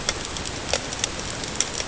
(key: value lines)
label: ambient
recorder: HydroMoth